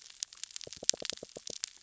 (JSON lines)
{"label": "biophony, knock", "recorder": "SoundTrap 600 or HydroMoth"}